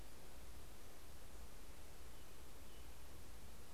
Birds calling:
Purple Finch (Haemorhous purpureus)
American Robin (Turdus migratorius)

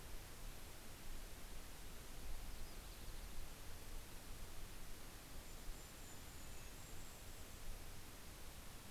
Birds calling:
Yellow-rumped Warbler (Setophaga coronata)
Red-breasted Nuthatch (Sitta canadensis)
Golden-crowned Kinglet (Regulus satrapa)

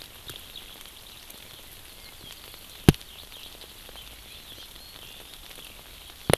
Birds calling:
Hawaii Amakihi (Chlorodrepanis virens)

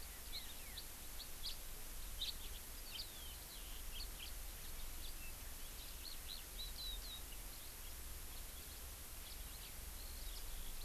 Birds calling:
House Finch (Haemorhous mexicanus)
Eurasian Skylark (Alauda arvensis)

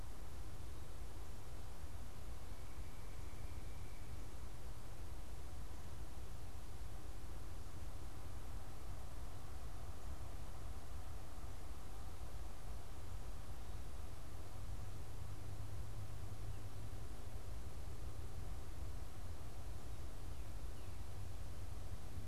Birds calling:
Pileated Woodpecker (Dryocopus pileatus)

